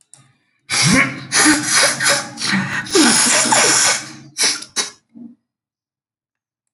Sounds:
Sneeze